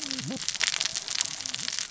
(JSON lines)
{"label": "biophony, cascading saw", "recorder": "SoundTrap 600 or HydroMoth"}